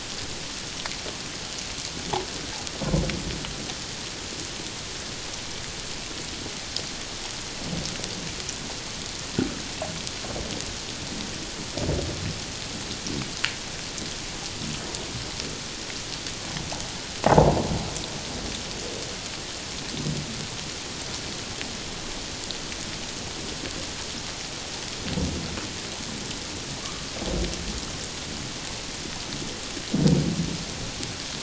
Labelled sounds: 26.8	27.1	humpback whale, 1.0 to 1.3 kHz

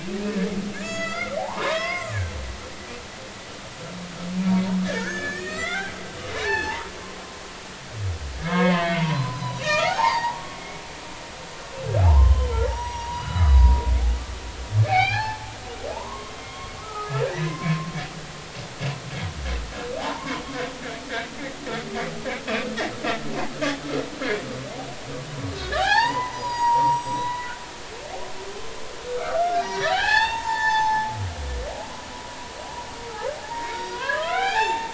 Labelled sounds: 0.2	2.2	humpback whale, 0.80 to 7.3 kHz
4.8	6.9	humpback whale, 0.80 to 7.1 kHz
8.5	10.6	humpback whale, 0.80 to 6.9 kHz
12.0	13.7	humpback whale, 0.80 to 5.9 kHz
14.8	17.9	humpback whale, 0.80 to 4.9 kHz
18.2	18.6	humpback whale, 1.5 to 2.1 kHz
20.0	20.3	humpback whale, 0.80 to 1.2 kHz
25.5	27.5	humpback whale, 0.80 to 7.8 kHz
29.2	31.1	humpback whale, 0.80 to 7.3 kHz
33.4	34.9	humpback whale, 0.80 to 4.9 kHz

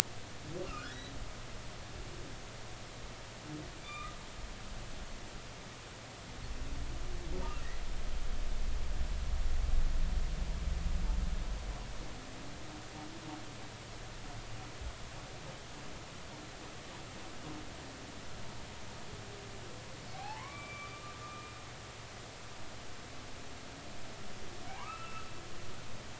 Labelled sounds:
0.7	1.1	humpback whale, 1.2 to 2.0 kHz
3.8	4.1	humpback whale, 1.1 to 3.7 kHz
20.1	20.9	humpback whale, 0.80 to 2.4 kHz
21.2	21.5	humpback whale, 1.2 to 2.5 kHz
24.7	25.3	humpback whale, 0.80 to 2.8 kHz

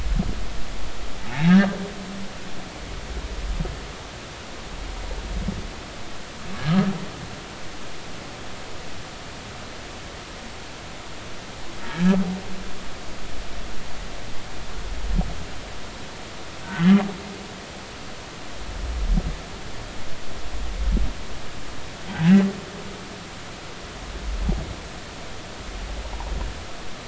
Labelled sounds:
1.2	1.8	humpback whale, 0.80 to 1.9 kHz
11.8	12.2	humpback whale, 1.6 to 1.9 kHz
16.8	17.0	humpback whale, 2.0 to 2.1 kHz

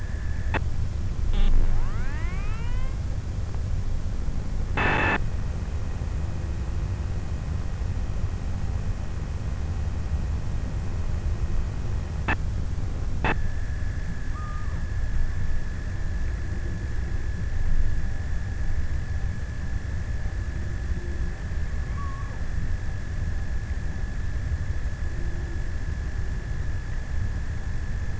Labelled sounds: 13.9	15.6	killer whale, offshore, 0.68 to 1.4 kHz
20.7	23.4	killer whale, offshore, 0.68 to 1.4 kHz

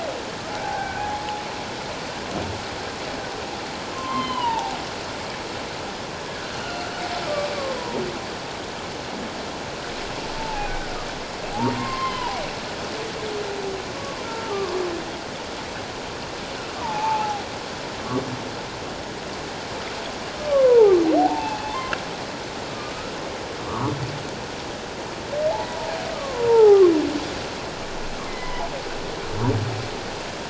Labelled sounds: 0.6	1.0	humpback whale, 0.78 to 1.7 kHz
3.9	4.8	humpback whale, 0.78 to 4.2 kHz
7.2	7.5	humpback whale, 1.1 to 1.3 kHz
10.4	10.7	humpback whale, 0.78 to 0.94 kHz
11.5	12.4	humpback whale, 0.78 to 3.2 kHz
14.2	14.5	humpback whale, 1.3 to 1.4 kHz
16.8	17.4	humpback whale, 0.78 to 1.1 kHz
20.5	22.0	humpback whale, 0.78 to 2.7 kHz
23.7	23.9	humpback whale, 0.91 to 1.4 kHz
26.1	26.9	humpback whale, 0.78 to 1.4 kHz
28.3	28.7	humpback whale, 0.81 to 2.2 kHz

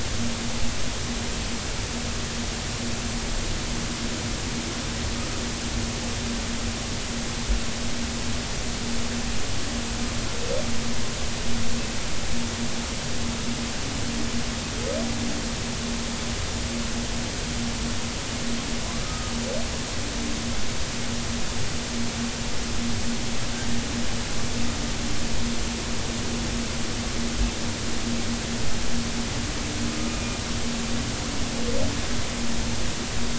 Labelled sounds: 19.0	19.3	humpback whale, 1.2 to 1.3 kHz
30.1	30.4	humpback whale, 2.4 to 2.5 kHz

